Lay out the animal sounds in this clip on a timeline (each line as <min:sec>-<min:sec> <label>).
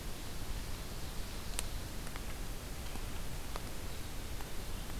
0:00.0-0:01.9 Ovenbird (Seiurus aurocapilla)